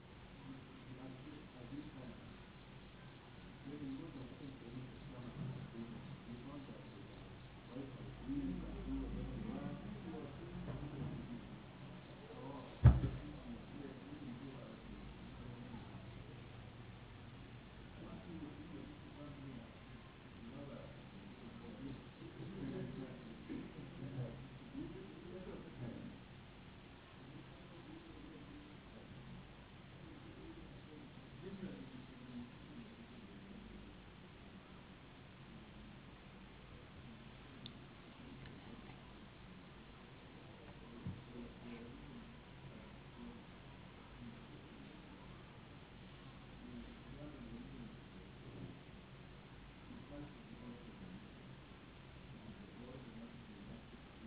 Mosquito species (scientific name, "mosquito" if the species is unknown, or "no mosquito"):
no mosquito